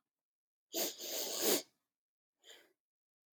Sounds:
Sniff